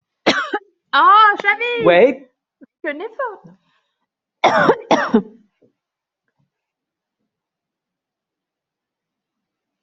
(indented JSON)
{
  "expert_labels": [
    {
      "quality": "ok",
      "cough_type": "dry",
      "dyspnea": false,
      "wheezing": false,
      "stridor": false,
      "choking": false,
      "congestion": false,
      "nothing": true,
      "diagnosis": "upper respiratory tract infection",
      "severity": "pseudocough/healthy cough"
    }
  ],
  "age": 30,
  "gender": "female",
  "respiratory_condition": false,
  "fever_muscle_pain": true,
  "status": "symptomatic"
}